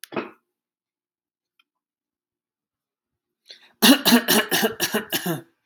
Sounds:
Cough